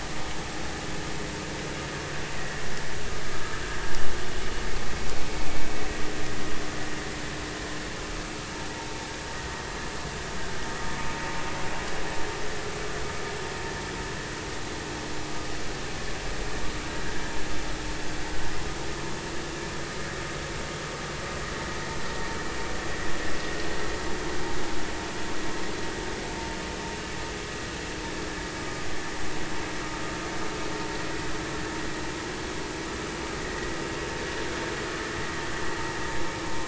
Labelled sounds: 3.2	3.6	vessel noise, 1.2 to 1.3 kHz

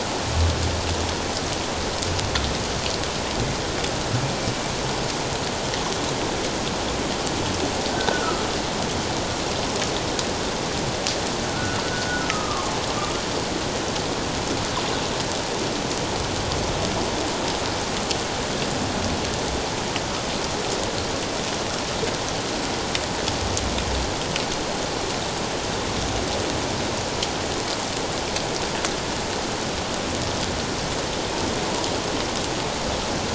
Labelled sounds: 7.9	8.4	humpback whale, 1.2 to 1.6 kHz
11.5	11.8	humpback whale, 1.3 to 1.5 kHz
12.3	12.7	humpback whale, 1.0 to 1.3 kHz

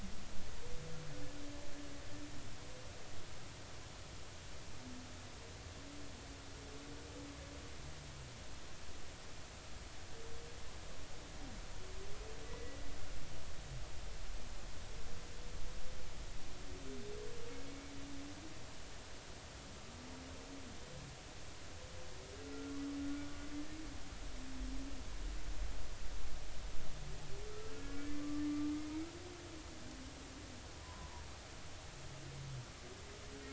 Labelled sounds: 12.4	12.8	humpback whale, 1.9 to 2.0 kHz
28.2	28.4	humpback whale, 1.1 to 1.2 kHz
30.8	31.1	humpback whale, 0.90 to 1.1 kHz

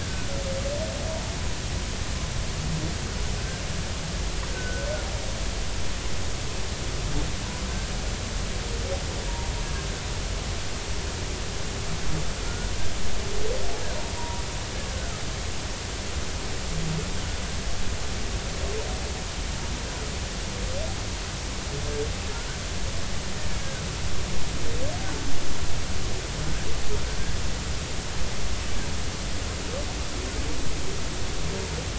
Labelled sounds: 0.0	0.3	humpback whale, 1.4 to 1.7 kHz
4.5	4.9	humpback whale, 1.4 to 1.6 kHz
14.2	14.4	humpback whale, 0.90 to 1.0 kHz
14.9	15.2	humpback whale, 1.2 to 1.7 kHz

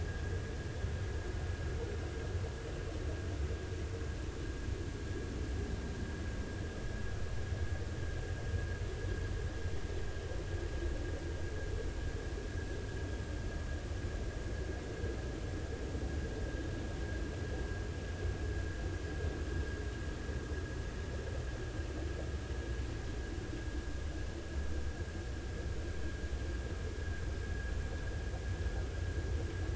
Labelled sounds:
27.4	27.7	vessel noise, 1.6 to 1.7 kHz

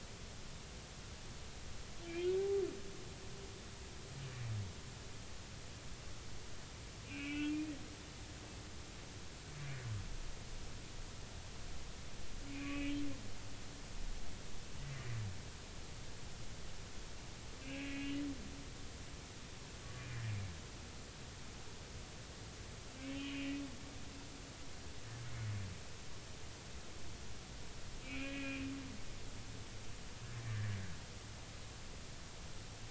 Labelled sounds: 2.1	2.3	humpback whale, 2.3 to 2.6 kHz
7.1	7.6	humpback whale, 1.4 to 3.0 kHz
12.5	13.0	humpback whale, 2.1 to 2.9 kHz
17.6	17.9	humpback whale, 2.2 to 2.9 kHz
23.1	23.6	humpback whale, 2.4 to 3.3 kHz
28.0	28.7	humpback whale, 1.6 to 3.1 kHz

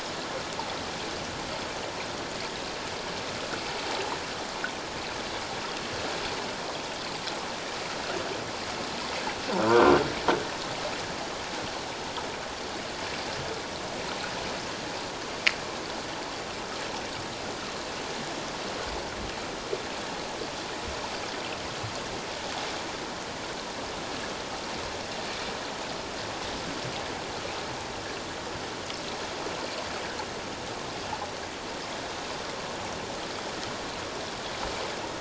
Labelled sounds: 9.6	9.9	croaking sound likely from a nearby submerged object, 1.3 to 1.6 kHz

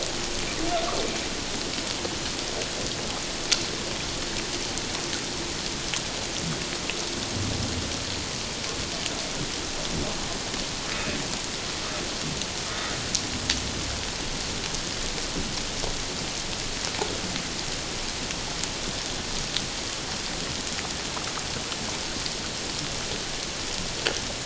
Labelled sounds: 12.7	13.0	humpback whale, 1.2 to 1.3 kHz

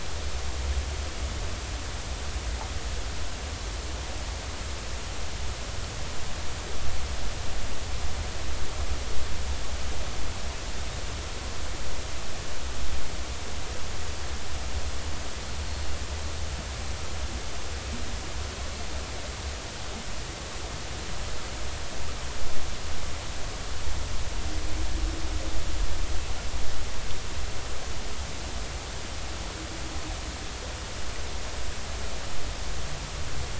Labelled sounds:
15.6	15.9	Pacific white-sided dolphin, 4.3 to 4.4 kHz

